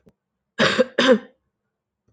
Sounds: Cough